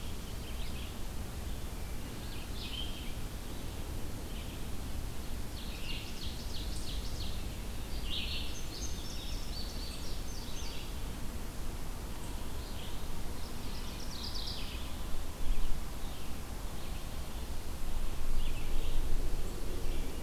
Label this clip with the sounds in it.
Red-eyed Vireo, Ovenbird, Indigo Bunting, Mourning Warbler